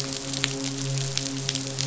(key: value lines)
label: biophony, midshipman
recorder: SoundTrap 500